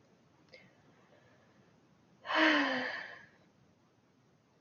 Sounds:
Sigh